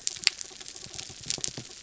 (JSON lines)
{"label": "anthrophony, mechanical", "recorder": "SoundTrap 300"}